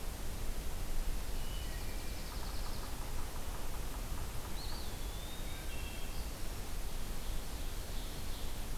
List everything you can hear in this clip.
Dark-eyed Junco, Wood Thrush, Yellow-bellied Sapsucker, Eastern Wood-Pewee, Ovenbird